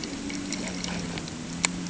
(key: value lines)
label: ambient
recorder: HydroMoth